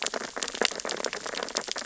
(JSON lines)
{"label": "biophony, sea urchins (Echinidae)", "recorder": "SoundTrap 600 or HydroMoth"}